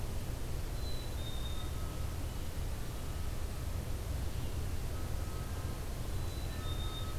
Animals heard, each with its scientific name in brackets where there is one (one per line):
Black-capped Chickadee (Poecile atricapillus)